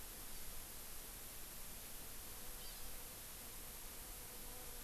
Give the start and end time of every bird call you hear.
[0.27, 0.57] Hawaii Amakihi (Chlorodrepanis virens)
[2.57, 2.97] Hawaii Amakihi (Chlorodrepanis virens)

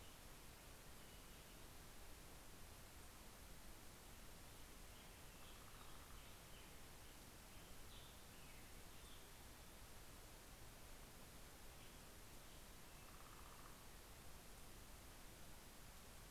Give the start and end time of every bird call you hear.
[0.00, 2.58] Black-headed Grosbeak (Pheucticus melanocephalus)
[4.48, 7.18] Northern Flicker (Colaptes auratus)
[4.68, 10.38] Black-headed Grosbeak (Pheucticus melanocephalus)

